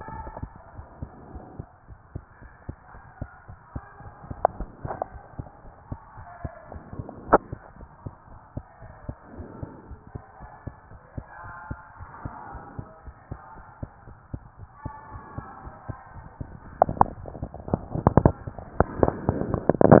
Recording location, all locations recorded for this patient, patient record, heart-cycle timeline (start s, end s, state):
tricuspid valve (TV)
aortic valve (AV)+pulmonary valve (PV)+tricuspid valve (TV)+mitral valve (MV)
#Age: Child
#Sex: Male
#Height: 108.0 cm
#Weight: 24.7 kg
#Pregnancy status: False
#Murmur: Absent
#Murmur locations: nan
#Most audible location: nan
#Systolic murmur timing: nan
#Systolic murmur shape: nan
#Systolic murmur grading: nan
#Systolic murmur pitch: nan
#Systolic murmur quality: nan
#Diastolic murmur timing: nan
#Diastolic murmur shape: nan
#Diastolic murmur grading: nan
#Diastolic murmur pitch: nan
#Diastolic murmur quality: nan
#Outcome: Normal
#Campaign: 2015 screening campaign
0.00	0.72	unannotated
0.72	0.86	S1
0.86	0.98	systole
0.98	1.10	S2
1.10	1.30	diastole
1.30	1.44	S1
1.44	1.56	systole
1.56	1.68	S2
1.68	1.87	diastole
1.87	1.98	S1
1.98	2.14	systole
2.14	2.24	S2
2.24	2.40	diastole
2.40	2.50	S1
2.50	2.64	systole
2.64	2.78	S2
2.78	2.93	diastole
2.93	3.02	S1
3.02	3.20	systole
3.20	3.30	S2
3.30	3.49	diastole
3.49	3.60	S1
3.60	3.74	systole
3.74	3.84	S2
3.84	4.02	diastole
4.02	4.14	S1
4.14	4.24	systole
4.24	4.38	S2
4.38	4.56	diastole
4.56	4.70	S1
4.70	4.82	systole
4.82	4.96	S2
4.96	5.14	diastole
5.14	5.22	S1
5.22	5.34	systole
5.34	5.48	S2
5.48	5.63	diastole
5.63	5.72	S1
5.72	5.86	systole
5.86	6.00	S2
6.00	6.16	diastole
6.16	6.26	S1
6.26	6.40	systole
6.40	6.54	S2
6.54	6.72	diastole
6.72	6.84	S1
6.84	6.94	systole
6.94	7.06	S2
7.06	7.26	diastole
7.26	7.42	S1
7.42	7.50	systole
7.50	7.62	S2
7.62	7.78	diastole
7.78	7.88	S1
7.88	8.02	systole
8.02	8.14	S2
8.14	8.30	diastole
8.30	8.40	S1
8.40	8.52	systole
8.52	8.64	S2
8.64	8.82	diastole
8.82	8.94	S1
8.94	9.04	systole
9.04	9.16	S2
9.16	9.34	diastole
9.34	9.48	S1
9.48	9.60	systole
9.60	9.70	S2
9.70	9.88	diastole
9.88	10.00	S1
10.00	10.14	systole
10.14	10.24	S2
10.24	10.40	diastole
10.40	10.50	S1
10.50	10.66	systole
10.66	10.76	S2
10.76	10.90	diastole
10.90	11.00	S1
11.00	11.16	systole
11.16	11.26	S2
11.26	11.44	diastole
11.44	11.54	S1
11.54	11.66	systole
11.66	11.80	S2
11.80	11.98	diastole
11.98	12.10	S1
12.10	12.24	systole
12.24	12.34	S2
12.34	12.52	diastole
12.52	12.64	S1
12.64	12.76	systole
12.76	12.88	S2
12.88	13.06	diastole
13.06	13.14	S1
13.14	13.30	systole
13.30	13.40	S2
13.40	13.56	diastole
13.56	13.64	S1
13.64	13.78	systole
13.78	13.90	S2
13.90	14.06	diastole
14.06	14.18	S1
14.18	14.32	systole
14.32	14.42	S2
14.42	14.58	diastole
14.58	14.70	S1
14.70	14.84	systole
14.84	14.94	S2
14.94	15.12	diastole
15.12	15.24	S1
15.24	15.36	systole
15.36	15.46	S2
15.46	15.64	diastole
15.64	15.74	S1
15.74	15.88	systole
15.88	15.98	S2
15.98	16.16	diastole
16.16	16.26	S1
16.26	16.36	systole
16.36	16.48	S2
16.48	20.00	unannotated